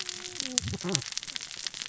{"label": "biophony, cascading saw", "recorder": "SoundTrap 600 or HydroMoth"}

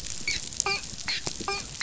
{"label": "biophony, dolphin", "recorder": "SoundTrap 500"}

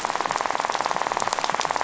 {"label": "biophony, rattle", "recorder": "SoundTrap 500"}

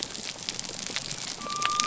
{"label": "biophony", "recorder": "SoundTrap 300"}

